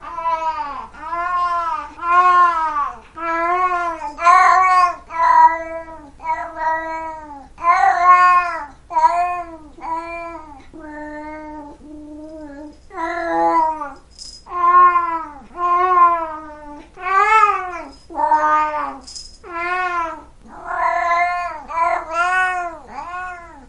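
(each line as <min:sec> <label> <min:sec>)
0:00.0 A cat howls repeatedly with alternating volume. 0:23.7
0:04.1 A toy rattles briefly. 0:04.5
0:12.4 A toy rattles quietly followed by a short, loud burst. 0:14.7
0:17.9 A toy rattles quietly followed by a short, loud burst. 0:19.6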